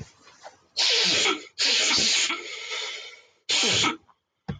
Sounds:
Sniff